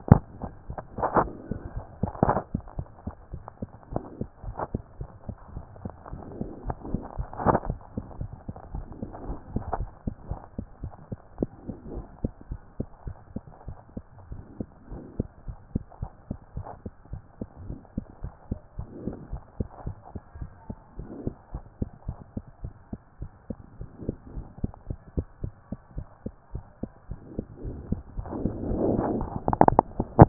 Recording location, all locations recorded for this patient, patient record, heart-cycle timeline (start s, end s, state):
mitral valve (MV)
aortic valve (AV)+pulmonary valve (PV)+tricuspid valve (TV)+mitral valve (MV)
#Age: Child
#Sex: Female
#Height: 111.0 cm
#Weight: 18.5 kg
#Pregnancy status: False
#Murmur: Absent
#Murmur locations: nan
#Most audible location: nan
#Systolic murmur timing: nan
#Systolic murmur shape: nan
#Systolic murmur grading: nan
#Systolic murmur pitch: nan
#Systolic murmur quality: nan
#Diastolic murmur timing: nan
#Diastolic murmur shape: nan
#Diastolic murmur grading: nan
#Diastolic murmur pitch: nan
#Diastolic murmur quality: nan
#Outcome: Normal
#Campaign: 2014 screening campaign
0.00	8.13	unannotated
8.13	8.18	diastole
8.18	8.32	S1
8.32	8.48	systole
8.48	8.54	S2
8.54	8.74	diastole
8.74	8.86	S1
8.86	9.00	systole
9.00	9.10	S2
9.10	9.28	diastole
9.28	9.38	S1
9.38	9.52	systole
9.52	9.62	S2
9.62	9.78	diastole
9.78	9.90	S1
9.90	10.06	systole
10.06	10.14	S2
10.14	10.30	diastole
10.30	10.40	S1
10.40	10.56	systole
10.56	10.66	S2
10.66	10.82	diastole
10.82	10.92	S1
10.92	11.10	systole
11.10	11.18	S2
11.18	11.40	diastole
11.40	11.50	S1
11.50	11.66	systole
11.66	11.76	S2
11.76	11.94	diastole
11.94	12.06	S1
12.06	12.22	systole
12.22	12.32	S2
12.32	12.50	diastole
12.50	12.60	S1
12.60	12.78	systole
12.78	12.88	S2
12.88	13.06	diastole
13.06	13.16	S1
13.16	13.34	systole
13.34	13.42	S2
13.42	13.66	diastole
13.66	13.76	S1
13.76	13.96	systole
13.96	14.04	S2
14.04	14.30	diastole
14.30	14.42	S1
14.42	14.58	systole
14.58	14.68	S2
14.68	14.90	diastole
14.90	15.02	S1
15.02	15.18	systole
15.18	15.28	S2
15.28	15.48	diastole
15.48	15.58	S1
15.58	15.74	systole
15.74	15.84	S2
15.84	16.02	diastole
16.02	16.12	S1
16.12	16.28	systole
16.28	16.38	S2
16.38	16.56	diastole
16.56	16.66	S1
16.66	16.84	systole
16.84	16.92	S2
16.92	17.12	diastole
17.12	17.22	S1
17.22	17.40	systole
17.40	17.48	S2
17.48	17.66	diastole
17.66	17.78	S1
17.78	17.96	systole
17.96	18.04	S2
18.04	18.22	diastole
18.22	18.34	S1
18.34	18.50	systole
18.50	18.60	S2
18.60	18.78	diastole
18.78	18.88	S1
18.88	19.04	systole
19.04	19.14	S2
19.14	19.32	diastole
19.32	19.42	S1
19.42	19.58	systole
19.58	19.68	S2
19.68	19.86	diastole
19.86	19.96	S1
19.96	20.14	systole
20.14	20.20	S2
20.20	20.38	diastole
20.38	20.50	S1
20.50	20.68	systole
20.68	20.76	S2
20.76	20.98	diastole
20.98	21.10	S1
21.10	21.24	systole
21.24	21.34	S2
21.34	21.52	diastole
21.52	21.64	S1
21.64	21.80	systole
21.80	21.90	S2
21.90	22.08	diastole
22.08	22.18	S1
22.18	22.36	systole
22.36	22.44	S2
22.44	22.62	diastole
22.62	22.74	S1
22.74	22.92	systole
22.92	23.00	S2
23.00	23.20	diastole
23.20	23.30	S1
23.30	23.48	systole
23.48	23.58	S2
23.58	23.78	diastole
23.78	23.90	S1
23.90	24.06	systole
24.06	24.14	S2
24.14	24.34	diastole
24.34	24.46	S1
24.46	24.62	systole
24.62	24.72	S2
24.72	24.88	diastole
24.88	25.00	S1
25.00	25.16	systole
25.16	25.26	S2
25.26	25.42	diastole
25.42	25.54	S1
25.54	25.70	systole
25.70	25.78	S2
25.78	25.96	diastole
25.96	26.06	S1
26.06	26.24	systole
26.24	26.34	S2
26.34	26.54	diastole
26.54	26.64	S1
26.64	26.82	systole
26.82	26.90	S2
26.90	27.08	diastole
27.08	27.16	S1
27.16	27.34	systole
27.34	27.42	S2
27.42	27.64	diastole
27.64	27.76	S1
27.76	27.90	systole
27.90	28.02	S2
28.02	28.10	diastole
28.10	30.29	unannotated